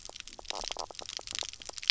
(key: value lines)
label: biophony, knock croak
recorder: SoundTrap 300